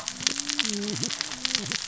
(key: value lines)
label: biophony, cascading saw
recorder: SoundTrap 600 or HydroMoth